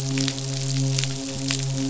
{"label": "biophony, midshipman", "recorder": "SoundTrap 500"}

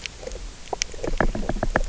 {"label": "biophony, knock", "recorder": "SoundTrap 300"}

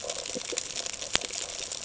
{"label": "ambient", "recorder": "HydroMoth"}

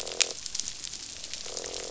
{"label": "biophony, croak", "recorder": "SoundTrap 500"}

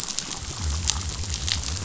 {"label": "biophony", "recorder": "SoundTrap 500"}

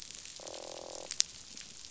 {"label": "biophony, croak", "recorder": "SoundTrap 500"}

